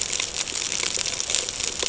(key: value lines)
label: ambient
recorder: HydroMoth